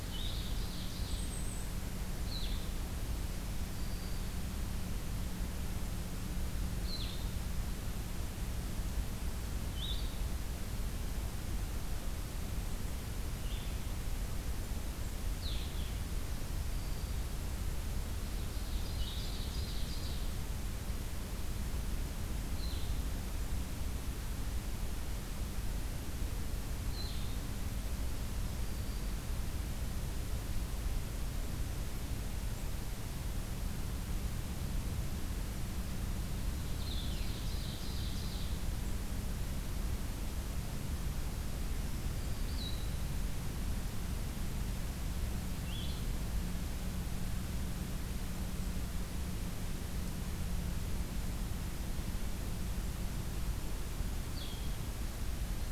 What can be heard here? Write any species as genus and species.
Vireo solitarius, Seiurus aurocapilla, Setophaga virens